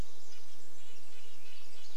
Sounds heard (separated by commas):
insect buzz, Red-breasted Nuthatch song, Chestnut-backed Chickadee call, Pacific Wren song